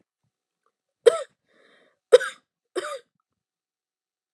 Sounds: Cough